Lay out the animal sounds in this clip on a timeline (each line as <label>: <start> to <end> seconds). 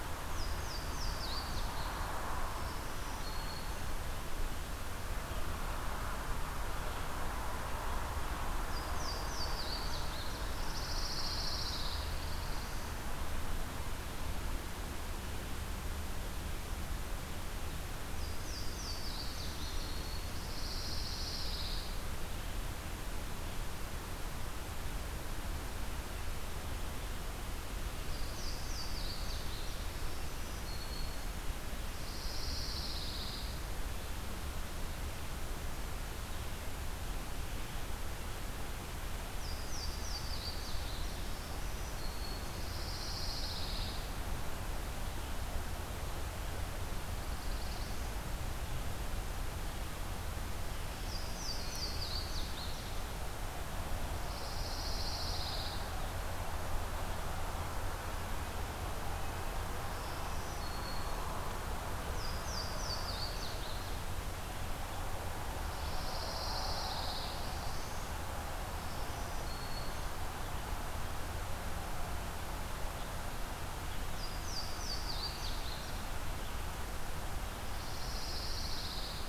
Louisiana Waterthrush (Parkesia motacilla): 0.0 to 2.0 seconds
Black-throated Green Warbler (Setophaga virens): 2.3 to 4.0 seconds
Louisiana Waterthrush (Parkesia motacilla): 8.6 to 10.5 seconds
Pine Warbler (Setophaga pinus): 10.2 to 12.4 seconds
Black-throated Blue Warbler (Setophaga caerulescens): 11.7 to 13.2 seconds
Louisiana Waterthrush (Parkesia motacilla): 18.0 to 20.4 seconds
Pine Warbler (Setophaga pinus): 20.0 to 22.2 seconds
Louisiana Waterthrush (Parkesia motacilla): 27.8 to 30.3 seconds
Black-throated Green Warbler (Setophaga virens): 29.7 to 31.5 seconds
Pine Warbler (Setophaga pinus): 31.9 to 33.5 seconds
Louisiana Waterthrush (Parkesia motacilla): 39.3 to 41.3 seconds
Black-throated Green Warbler (Setophaga virens): 41.1 to 42.7 seconds
Pine Warbler (Setophaga pinus): 42.5 to 44.1 seconds
Black-throated Blue Warbler (Setophaga caerulescens): 46.9 to 48.2 seconds
Louisiana Waterthrush (Parkesia motacilla): 50.7 to 52.9 seconds
Pine Warbler (Setophaga pinus): 54.1 to 55.9 seconds
Black-throated Green Warbler (Setophaga virens): 59.8 to 61.2 seconds
Louisiana Waterthrush (Parkesia motacilla): 62.1 to 64.1 seconds
Pine Warbler (Setophaga pinus): 65.4 to 67.4 seconds
Black-throated Blue Warbler (Setophaga caerulescens): 67.0 to 68.1 seconds
Black-throated Green Warbler (Setophaga virens): 68.7 to 70.5 seconds
Louisiana Waterthrush (Parkesia motacilla): 74.0 to 76.3 seconds
Pine Warbler (Setophaga pinus): 77.6 to 79.3 seconds